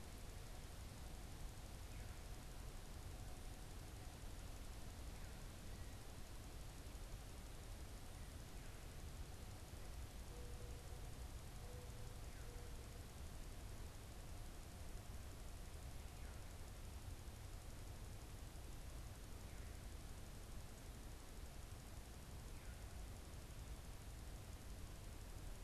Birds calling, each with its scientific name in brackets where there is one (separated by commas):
Mourning Dove (Zenaida macroura)